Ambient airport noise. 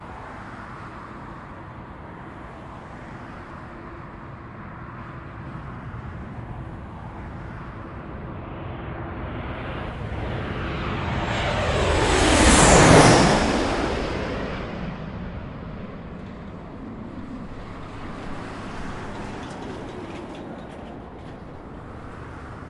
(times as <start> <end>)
0.0 10.4, 15.9 22.7